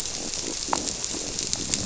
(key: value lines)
label: biophony
recorder: SoundTrap 300